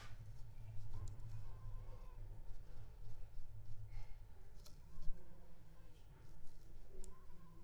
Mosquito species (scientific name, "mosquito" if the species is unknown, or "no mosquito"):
Culex pipiens complex